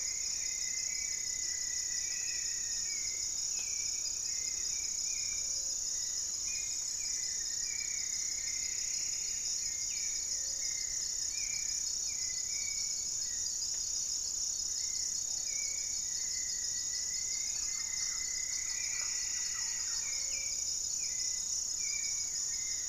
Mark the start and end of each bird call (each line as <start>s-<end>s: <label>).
0.0s-1.1s: Red-bellied Macaw (Orthopsittaca manilatus)
0.0s-3.1s: Rufous-fronted Antthrush (Formicarius rufifrons)
0.0s-22.9s: Gray-fronted Dove (Leptotila rufaxilla)
0.0s-22.9s: Hauxwell's Thrush (Turdus hauxwelli)
3.5s-4.9s: unidentified bird
7.0s-9.8s: Plumbeous Antbird (Myrmelastes hyperythrus)
8.3s-12.0s: Goeldi's Antbird (Akletos goeldii)
15.4s-20.2s: Rufous-fronted Antthrush (Formicarius rufifrons)
17.4s-20.7s: Thrush-like Wren (Campylorhynchus turdinus)
17.7s-20.2s: Plumbeous Antbird (Myrmelastes hyperythrus)
21.8s-22.9s: Goeldi's Antbird (Akletos goeldii)